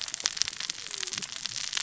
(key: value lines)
label: biophony, cascading saw
recorder: SoundTrap 600 or HydroMoth